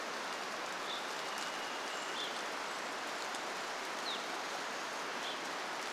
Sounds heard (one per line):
Brown Creeper call
rain
Varied Thrush song
Chestnut-backed Chickadee call
Evening Grosbeak call